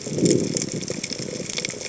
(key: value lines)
label: biophony
recorder: HydroMoth